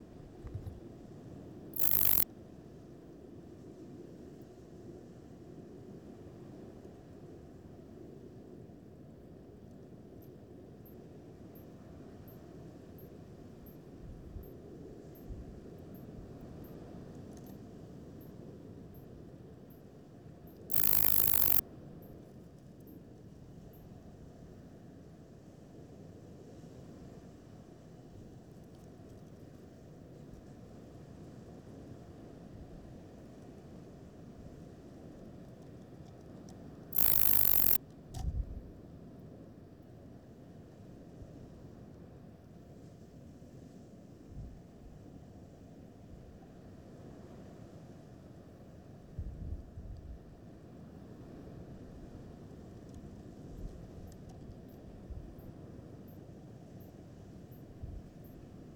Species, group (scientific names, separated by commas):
Platycleis escalerai, Orthoptera